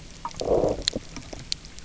{"label": "biophony, low growl", "recorder": "SoundTrap 300"}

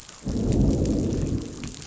{"label": "biophony, growl", "recorder": "SoundTrap 500"}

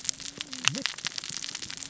{"label": "biophony, cascading saw", "recorder": "SoundTrap 600 or HydroMoth"}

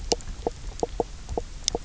{"label": "biophony, knock croak", "recorder": "SoundTrap 300"}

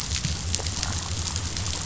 {"label": "biophony", "recorder": "SoundTrap 500"}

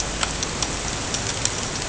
{"label": "ambient", "recorder": "HydroMoth"}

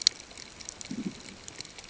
{"label": "ambient", "recorder": "HydroMoth"}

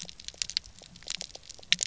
{"label": "biophony, pulse", "recorder": "SoundTrap 300"}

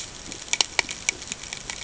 {"label": "ambient", "recorder": "HydroMoth"}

